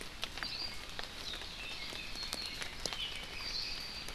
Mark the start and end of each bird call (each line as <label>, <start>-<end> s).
Hawaii Akepa (Loxops coccineus), 0.4-0.7 s
Red-billed Leiothrix (Leiothrix lutea), 1.6-4.1 s